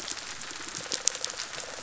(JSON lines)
{"label": "biophony, pulse", "recorder": "SoundTrap 500"}